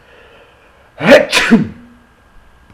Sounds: Sneeze